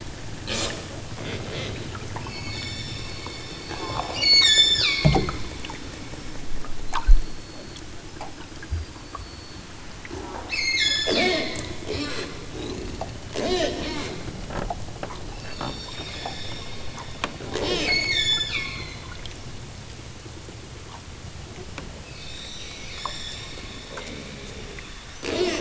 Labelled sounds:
2.2	3.1	killer whale, southern Alaska resident, 1.1 to 8.0 kHz
4.1	5.1	killer whale, southern Alaska resident, 0.92 to 8.0 kHz
10.5	11.6	killer whale, southern Alaska resident, 1.3 to 8.0 kHz
15.4	16.3	killer whale, southern Alaska resident, 2.7 to 8.0 kHz
17.8	19.0	killer whale, southern Alaska resident, 1.0 to 8.0 kHz
22.2	23.4	killer whale, southern Alaska resident, 1.4 to 8.0 kHz

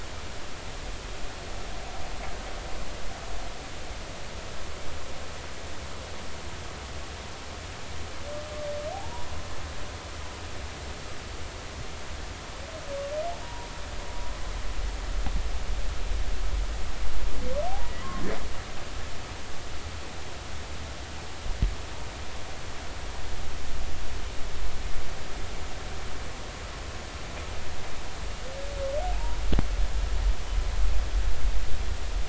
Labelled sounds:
8.9	9.3	humpback whale, 0.80 to 1.0 kHz
13.4	13.7	humpback whale, 0.90 to 0.99 kHz
17.8	18.1	humpback whale, 1.9 to 2.0 kHz
29.1	29.4	humpback whale, 0.80 to 1.0 kHz

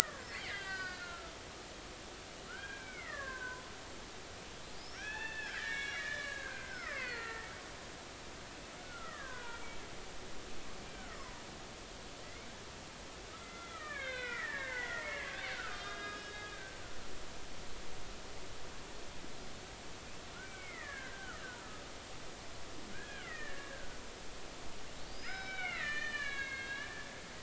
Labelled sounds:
0.0	1.3	killer whale, Bigg's (transient), 1.0 to 5.1 kHz
2.5	3.6	killer whale, Bigg's (transient), 0.93 to 3.3 kHz
4.8	7.5	killer whale, Bigg's (transient), 0.96 to 5.9 kHz
8.8	9.8	killer whale, Bigg's (transient), 0.96 to 2.4 kHz
10.9	12.5	killer whale, Bigg's (transient), 0.90 to 2.3 kHz
13.4	16.8	killer whale, Bigg's (transient), 1.1 to 5.0 kHz
20.4	21.8	killer whale, Bigg's (transient), 1.2 to 2.4 kHz
22.9	24.0	killer whale, Bigg's (transient), 1.2 to 2.6 kHz
25.1	26.9	killer whale, Bigg's (transient), 1.1 to 5.4 kHz

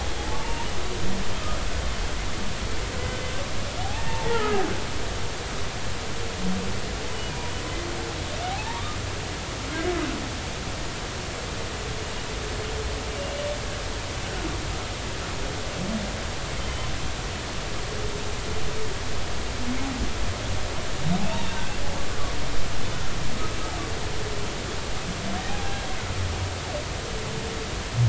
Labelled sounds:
0.2	0.7	humpback whale, 0.80 to 0.99 kHz
3.8	4.6	humpback whale, 0.80 to 1.4 kHz
8.5	8.8	humpback whale, 0.80 to 0.99 kHz
16.6	16.9	humpback whale, 3.0 to 3.2 kHz
21.2	21.8	humpback whale, 0.80 to 1.7 kHz
25.5	25.8	humpback whale, 0.80 to 0.86 kHz

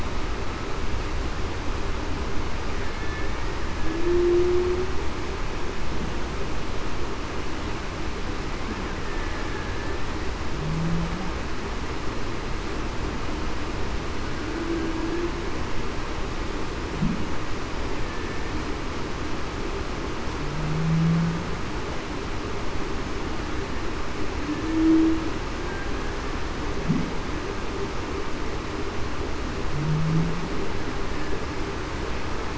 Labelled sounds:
2.9	3.2	killer whale, Bigg's (transient), 2.1 to 2.2 kHz
3.8	4.7	humpback whale, 0.30 to 0.42 kHz
18.0	18.4	killer whale, Bigg's (transient), 1.7 to 1.8 kHz
20.8	21.3	humpback whale, 0.19 to 0.21 kHz
24.6	25.2	humpback whale, 0.28 to 0.38 kHz

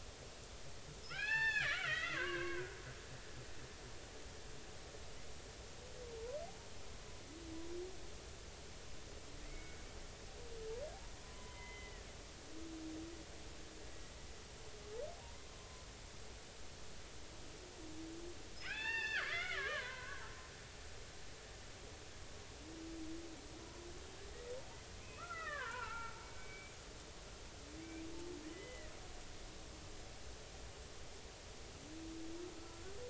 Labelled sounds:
1.1	2.8	killer whale, Bigg's (transient), 0.80 to 5.4 kHz
9.4	9.8	killer whale, Bigg's (transient), 1.9 to 2.3 kHz
11.2	12.1	killer whale, Bigg's (transient), 0.93 to 3.2 kHz
15.2	15.9	killer whale, Bigg's (transient), 0.90 to 1.1 kHz
18.6	20.2	killer whale, Bigg's (transient), 0.80 to 4.7 kHz
25.0	26.8	killer whale, Bigg's (transient), 0.83 to 2.7 kHz
27.8	28.9	killer whale, Bigg's (transient), 1.9 to 3.1 kHz
32.6	33.0	killer whale, Bigg's (transient), 1.3 to 1.6 kHz

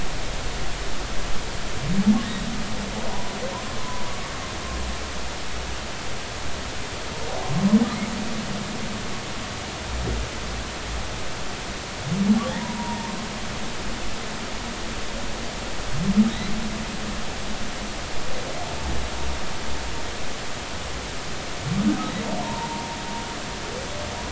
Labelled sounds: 3.1	4.3	humpback whale, 0.93 to 1.2 kHz
12.5	13.1	humpback whale, 0.83 to 1.0 kHz
22.4	22.9	humpback whale, 0.86 to 1.1 kHz

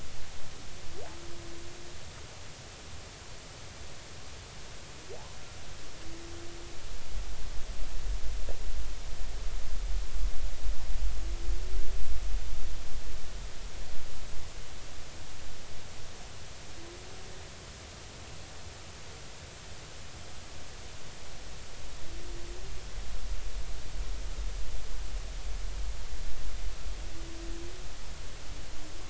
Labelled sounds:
5.1	5.4	humpback whale, 0.80 to 1.1 kHz

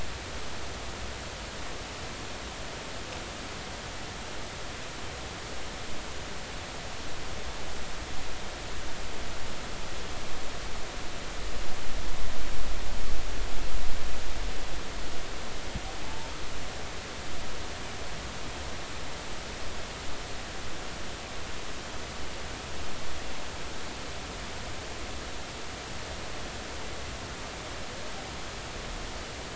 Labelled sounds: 16.0	16.4	humpback whale, 0.83 to 0.96 kHz

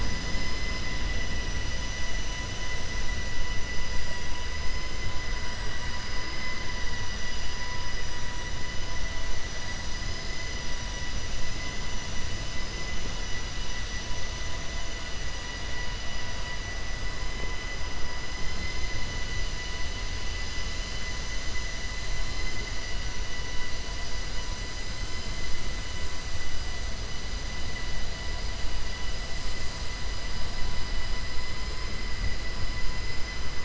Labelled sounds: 6.1	6.7	vessel noise, 1.0 to 3.1 kHz

